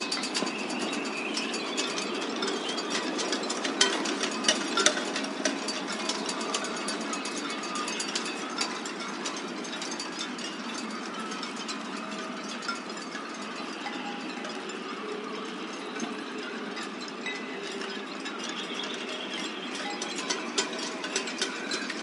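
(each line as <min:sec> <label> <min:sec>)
0:00.0 Birds chirp quietly in the background. 0:22.0
0:00.0 Wind chimes clink loudly. 0:22.0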